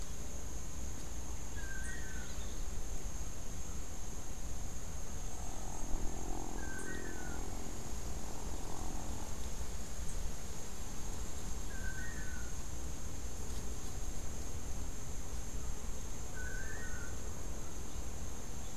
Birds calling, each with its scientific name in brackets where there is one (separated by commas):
Long-tailed Manakin (Chiroxiphia linearis)